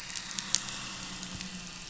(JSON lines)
{"label": "anthrophony, boat engine", "recorder": "SoundTrap 500"}